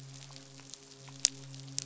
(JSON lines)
{"label": "biophony, midshipman", "recorder": "SoundTrap 500"}